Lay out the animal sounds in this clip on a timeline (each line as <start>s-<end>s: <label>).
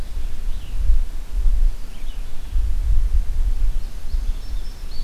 0.0s-5.0s: Red-eyed Vireo (Vireo olivaceus)
3.7s-5.0s: Indigo Bunting (Passerina cyanea)